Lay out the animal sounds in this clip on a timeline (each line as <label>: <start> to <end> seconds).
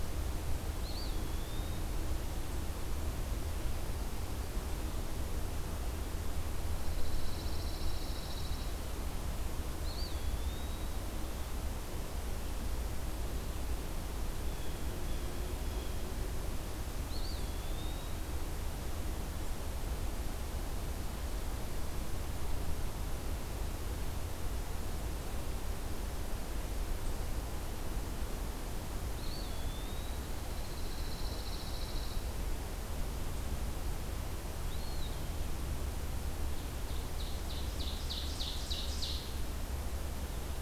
Eastern Wood-Pewee (Contopus virens): 0.6 to 1.9 seconds
Pine Warbler (Setophaga pinus): 6.7 to 8.8 seconds
Eastern Wood-Pewee (Contopus virens): 9.7 to 11.1 seconds
Blue Jay (Cyanocitta cristata): 14.4 to 15.9 seconds
Eastern Wood-Pewee (Contopus virens): 16.9 to 18.3 seconds
Eastern Wood-Pewee (Contopus virens): 29.0 to 30.4 seconds
Pine Warbler (Setophaga pinus): 30.4 to 32.4 seconds
Eastern Wood-Pewee (Contopus virens): 34.5 to 35.3 seconds
Ovenbird (Seiurus aurocapilla): 36.5 to 39.5 seconds